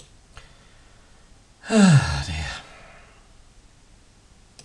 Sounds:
Sigh